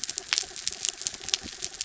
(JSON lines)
{"label": "anthrophony, mechanical", "recorder": "SoundTrap 300"}